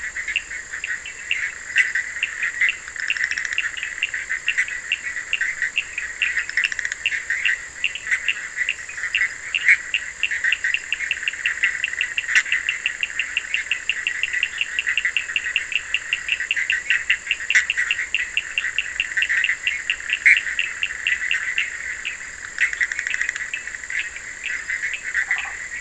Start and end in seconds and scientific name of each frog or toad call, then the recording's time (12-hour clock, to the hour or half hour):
0.0	25.8	Boana bischoffi
0.0	25.8	Sphaenorhynchus surdus
25.0	25.8	Boana prasina
~midnight